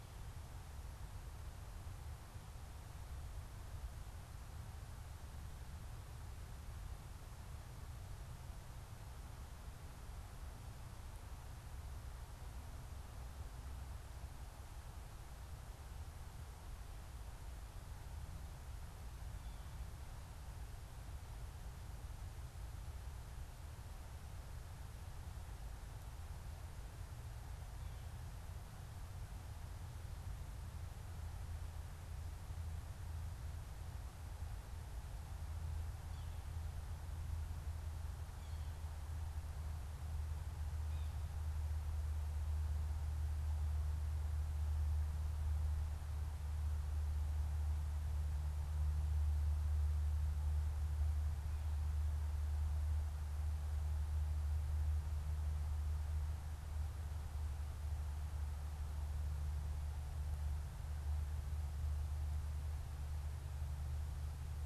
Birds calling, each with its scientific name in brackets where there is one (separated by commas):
Yellow-bellied Sapsucker (Sphyrapicus varius)